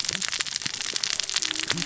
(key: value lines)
label: biophony, cascading saw
recorder: SoundTrap 600 or HydroMoth